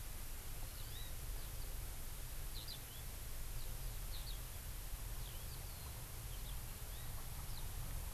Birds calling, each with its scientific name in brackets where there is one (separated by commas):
Hawaii Amakihi (Chlorodrepanis virens), Eurasian Skylark (Alauda arvensis)